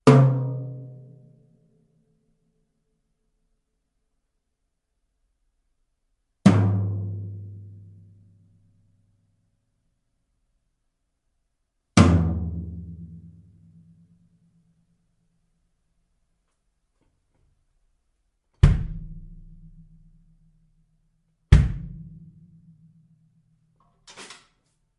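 0.0s Loud thumping caused by drums indoors. 2.1s
6.3s Loud, clear drums playing indoors. 8.6s
11.8s Loud rumbling noise caused by drums indoors. 14.2s
18.5s Thumping low drum sounds. 20.2s
21.5s Low, thumping drum sounds. 22.9s
23.9s Rumbling metallic sound of drums. 24.7s

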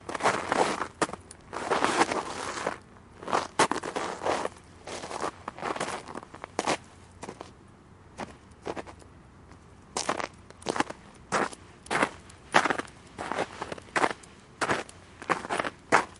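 0.0s Footsteps crunch repeatedly in the snow. 16.2s

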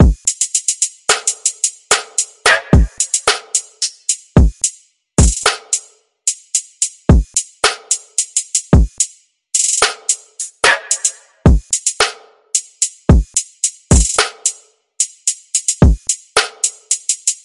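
0.0s Continuous rhythmic beats from multiple instruments creating an energetic DJ-style sound. 17.4s

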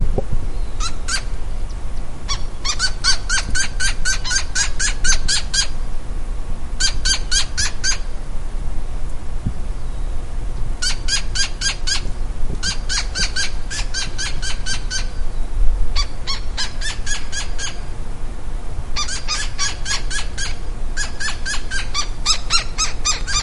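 0.0s Birds chirping faintly. 23.4s
0.0s White noise. 23.4s
0.1s Something hits wood. 0.4s
0.8s Squeaking. 1.3s
2.6s Rhythmic squeaking sounds. 5.7s
6.8s Rhythmic squeaking sounds. 8.0s
10.8s Rhythmic squeaking sounds. 15.0s
16.0s Rhythmic squeaking sounds overlap from multiple sources. 23.4s

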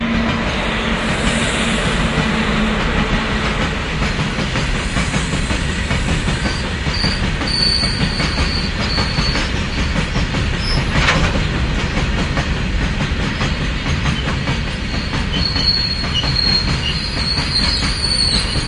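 0.1s An old train is passing by slowly on an old railway. 18.7s

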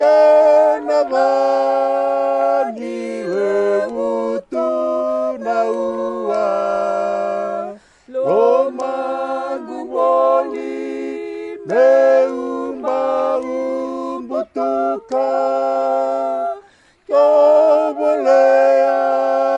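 0.0s Multiple voices singing together in harmony continuously and melodically. 19.6s

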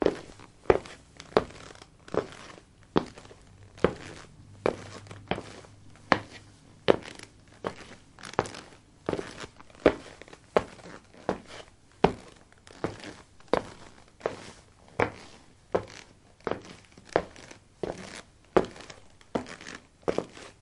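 0.0s Trekking boots thud on linoleum with a firm, rhythmic pace. 20.5s

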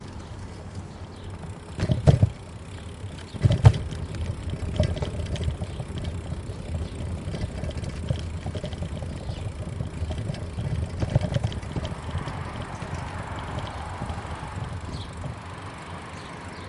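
0.0s A bike rides over a rough surface. 0.9s
0.0s A bike chain produces a rhythmic light clattering sound. 16.7s
1.8s A bike goes over a bump. 2.3s
3.2s A bike rides down the street. 15.8s
3.3s A bike goes over a bump. 3.9s
11.8s A car drives by loudly. 16.7s

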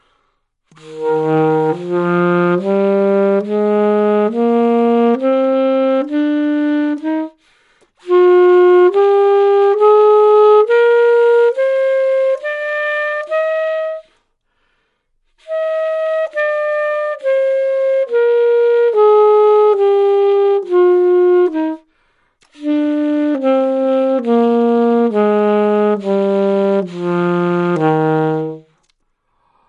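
0.6s A saxophone plays with a continuously increasing frequency. 14.1s
15.4s A saxophone is played with continuously decreasing frequency. 21.8s
22.4s A saxophone is played with continuously decreasing frequency. 28.8s

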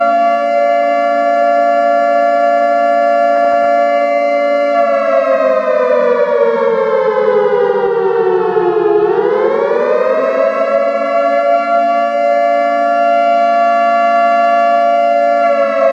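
0.0s A wailing, high-pitched siren cycling steadily as it signals an urgent warning. 15.9s

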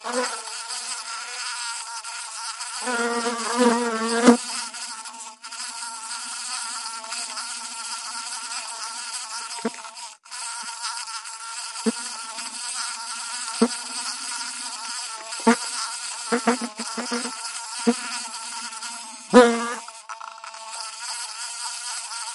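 0.0s Loud buzzing of flying insects repeating and echoing. 22.3s

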